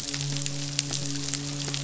{"label": "biophony, midshipman", "recorder": "SoundTrap 500"}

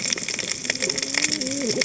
{"label": "biophony, cascading saw", "recorder": "HydroMoth"}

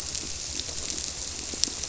{"label": "biophony", "recorder": "SoundTrap 300"}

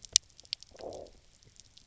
{"label": "biophony, low growl", "recorder": "SoundTrap 300"}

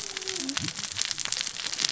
{"label": "biophony, cascading saw", "recorder": "SoundTrap 600 or HydroMoth"}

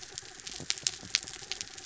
{"label": "anthrophony, mechanical", "recorder": "SoundTrap 300"}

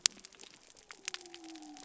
{"label": "biophony", "recorder": "SoundTrap 300"}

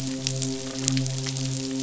{"label": "biophony, midshipman", "recorder": "SoundTrap 500"}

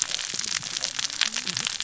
{"label": "biophony, cascading saw", "recorder": "SoundTrap 600 or HydroMoth"}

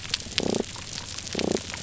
{"label": "biophony", "recorder": "SoundTrap 300"}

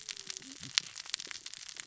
{"label": "biophony, cascading saw", "recorder": "SoundTrap 600 or HydroMoth"}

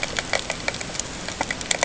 {"label": "ambient", "recorder": "HydroMoth"}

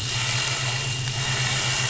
{"label": "anthrophony, boat engine", "recorder": "SoundTrap 500"}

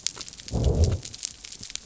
{"label": "biophony", "recorder": "SoundTrap 300"}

